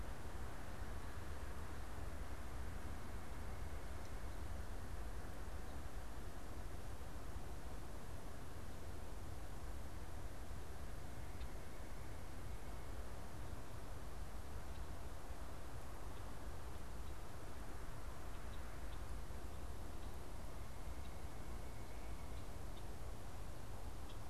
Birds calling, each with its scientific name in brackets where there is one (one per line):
White-breasted Nuthatch (Sitta carolinensis)
Red-winged Blackbird (Agelaius phoeniceus)